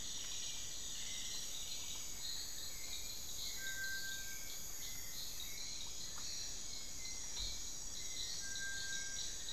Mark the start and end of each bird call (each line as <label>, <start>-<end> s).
Cinnamon-throated Woodcreeper (Dendrexetastes rufigula), 0.0-0.6 s
Black-billed Thrush (Turdus ignobilis), 0.0-9.5 s
Little Tinamou (Crypturellus soui), 0.0-9.5 s
Long-billed Woodcreeper (Nasica longirostris), 8.8-9.5 s